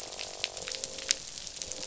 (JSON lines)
{"label": "biophony, croak", "recorder": "SoundTrap 500"}